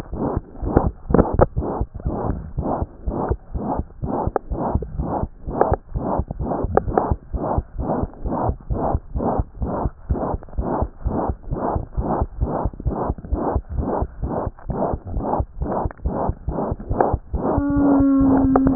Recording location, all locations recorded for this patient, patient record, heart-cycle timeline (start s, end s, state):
tricuspid valve (TV)
aortic valve (AV)+pulmonary valve (PV)+tricuspid valve (TV)+mitral valve (MV)
#Age: Infant
#Sex: Female
#Height: 71.0 cm
#Weight: 8.6 kg
#Pregnancy status: False
#Murmur: Present
#Murmur locations: aortic valve (AV)+mitral valve (MV)+pulmonary valve (PV)+tricuspid valve (TV)
#Most audible location: tricuspid valve (TV)
#Systolic murmur timing: Holosystolic
#Systolic murmur shape: Plateau
#Systolic murmur grading: III/VI or higher
#Systolic murmur pitch: High
#Systolic murmur quality: Harsh
#Diastolic murmur timing: nan
#Diastolic murmur shape: nan
#Diastolic murmur grading: nan
#Diastolic murmur pitch: nan
#Diastolic murmur quality: nan
#Outcome: Abnormal
#Campaign: 2015 screening campaign
0.00	1.88	unannotated
1.88	2.04	diastole
2.04	2.14	S1
2.14	2.26	systole
2.26	2.38	S2
2.38	2.56	diastole
2.56	2.66	S1
2.66	2.78	systole
2.78	2.90	S2
2.90	3.06	diastole
3.06	3.18	S1
3.18	3.28	systole
3.28	3.38	S2
3.38	3.54	diastole
3.54	3.66	S1
3.66	3.76	systole
3.76	3.86	S2
3.86	4.04	diastole
4.04	4.14	S1
4.14	4.24	systole
4.24	4.34	S2
4.34	4.50	diastole
4.50	4.60	S1
4.60	4.72	systole
4.72	4.84	S2
4.84	4.98	diastole
4.98	5.10	S1
5.10	5.20	systole
5.20	5.30	S2
5.30	5.46	diastole
5.46	5.60	S1
5.60	5.70	systole
5.70	5.80	S2
5.80	5.94	diastole
5.94	6.04	S1
6.04	6.16	systole
6.16	6.24	S2
6.24	6.38	diastole
6.38	6.50	S1
6.50	6.62	systole
6.62	6.72	S2
6.72	6.86	diastole
6.86	6.96	S1
6.96	7.08	systole
7.08	7.16	S2
7.16	7.32	diastole
7.32	7.46	S1
7.46	7.56	systole
7.56	7.64	S2
7.64	7.78	diastole
7.78	7.90	S1
7.90	7.98	systole
7.98	8.10	S2
8.10	8.24	diastole
8.24	8.38	S1
8.38	8.46	systole
8.46	8.54	S2
8.54	8.70	diastole
8.70	8.80	S1
8.80	8.88	systole
8.88	9.00	S2
9.00	9.16	diastole
9.16	9.32	S1
9.32	9.36	systole
9.36	9.46	S2
9.46	9.60	diastole
9.60	9.74	S1
9.74	9.84	systole
9.84	9.94	S2
9.94	10.08	diastole
10.08	10.22	S1
10.22	10.32	systole
10.32	10.42	S2
10.42	10.56	diastole
10.56	10.66	S1
10.66	10.76	systole
10.76	10.88	S2
10.88	11.04	diastole
11.04	11.18	S1
11.18	11.28	systole
11.28	11.36	S2
11.36	11.49	diastole
11.49	11.60	S1
11.60	11.74	systole
11.74	11.82	S2
11.82	11.96	diastole
11.96	12.06	S1
12.06	12.18	systole
12.18	12.27	S2
12.27	12.39	diastole
12.39	12.48	S1
12.48	12.62	systole
12.62	12.71	S2
12.71	12.84	diastole
12.84	12.96	S1
12.96	13.08	systole
13.08	13.16	S2
13.16	13.30	diastole
13.30	13.40	S1
13.40	13.53	systole
13.53	13.63	S2
13.63	13.75	diastole
13.75	13.86	S1
13.86	13.99	systole
13.99	14.07	S2
14.07	14.20	diastole
14.20	14.32	S1
14.32	14.44	systole
14.44	14.54	S2
14.54	14.67	diastole
14.67	14.77	S1
14.77	14.92	systole
14.92	15.00	S2
15.00	15.14	diastole
15.14	15.26	S1
15.26	15.38	systole
15.38	15.46	S2
15.46	15.59	diastole
15.59	15.69	S1
15.69	15.84	systole
15.84	15.91	S2
15.91	16.04	diastole
16.04	16.12	S1
16.12	16.27	systole
16.27	16.36	S2
16.36	16.47	diastole
16.47	16.55	S1
16.55	16.70	systole
16.70	16.78	S2
16.78	16.89	diastole
16.89	18.75	unannotated